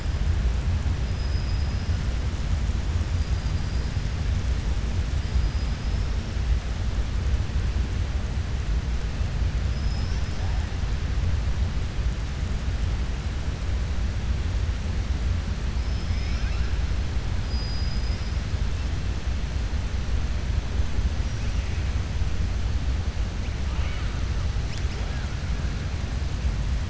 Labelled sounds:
1.1	1.9	killer whale, southern resident, 4.6 to 5.3 kHz
5.2	6.1	killer whale, southern resident, 4.8 to 5.6 kHz
9.6	10.4	killer whale, southern resident, 4.2 to 6.2 kHz
15.8	16.7	killer whale, southern resident, 1.3 to 6.2 kHz
17.4	18.3	killer whale, southern resident, 4.9 to 5.7 kHz

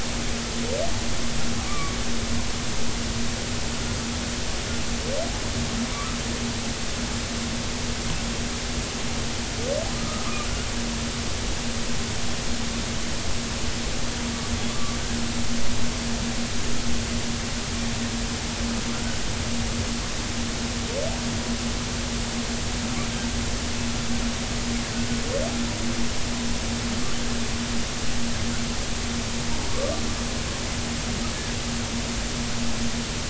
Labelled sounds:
1.7	2.0	humpback whale, 1.1 to 1.2 kHz
5.9	6.2	humpback whale, 1.0 to 1.3 kHz
10.0	10.3	humpback whale, 1.2 to 1.3 kHz
14.7	15.0	humpback whale, 1.1 to 1.2 kHz

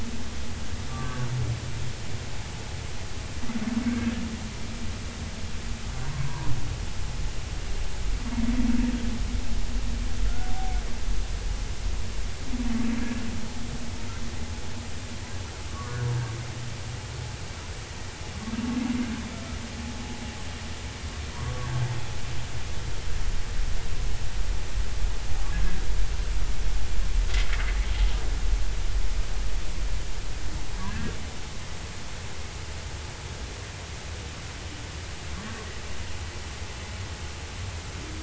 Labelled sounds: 0.9	1.3	humpback whale, 1.1 to 1.7 kHz
3.8	4.2	humpback whale, 1.5 to 1.9 kHz
6.1	6.5	humpback whale, 0.90 to 1.2 kHz
10.2	10.8	humpback whale, 0.80 to 1.5 kHz
15.7	16.0	humpback whale, 0.96 to 1.2 kHz
21.3	21.8	humpback whale, 0.90 to 1.2 kHz
30.9	31.1	humpback whale, 1.5 to 1.9 kHz

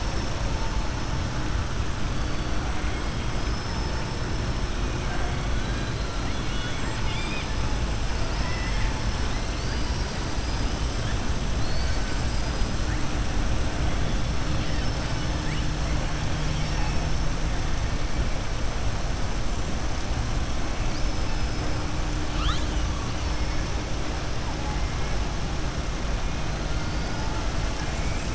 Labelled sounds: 3.3	4.2	killer whale, southern resident, 4.8 to 5.4 kHz
6.2	7.5	killer whale, southern resident, 1.5 to 5.1 kHz
8.3	9.0	killer whale, southern resident, 0.88 to 3.5 kHz
9.5	10.7	killer whale, southern resident, 3.9 to 5.6 kHz
26.7	27.2	killer whale, southern resident, 4.2 to 5.5 kHz
27.7	28.3	killer whale, southern resident, 1.6 to 3.0 kHz

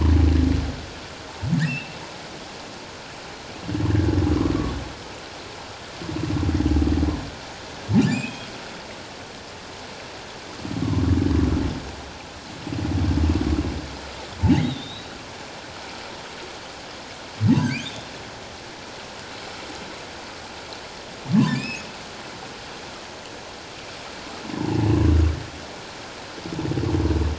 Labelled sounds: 1.6	2.0	humpback whale, 2.5 to 2.9 kHz
4.3	4.5	humpback whale, 0.97 to 1.3 kHz
8.1	8.5	humpback whale, 2.3 to 7.6 kHz
14.6	15.1	humpback whale, 3.5 to 3.9 kHz
17.8	18.1	humpback whale, 2.9 to 3.8 kHz
21.3	21.9	humpback whale, 0.94 to 5.2 kHz

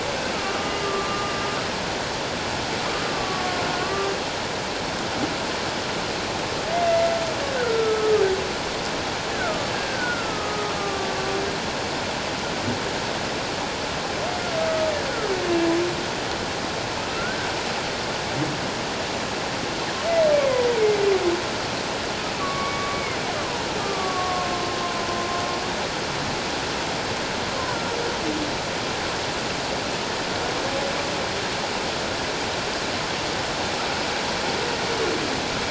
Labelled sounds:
0.3	1.3	humpback whale, 1.1 to 2.9 kHz
3.1	4.1	humpback whale, 1.1 to 1.2 kHz
6.7	7.1	humpback whale, 2.0 to 2.1 kHz
7.5	8.1	humpback whale, 1.2 to 1.7 kHz
9.3	11.1	humpback whale, 1.1 to 1.8 kHz
17.0	17.5	humpback whale, 1.2 to 1.8 kHz
20.3	20.7	humpback whale, 1.9 to 2.4 kHz
22.4	23.2	humpback whale, 1.1 to 2.3 kHz
23.8	24.5	humpback whale, 1.0 to 1.2 kHz

